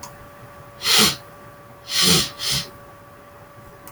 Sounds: Sniff